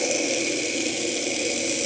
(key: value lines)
label: anthrophony, boat engine
recorder: HydroMoth